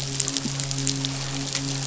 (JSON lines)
{"label": "biophony, midshipman", "recorder": "SoundTrap 500"}